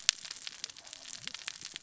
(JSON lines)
{"label": "biophony, cascading saw", "recorder": "SoundTrap 600 or HydroMoth"}